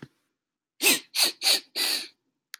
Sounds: Sniff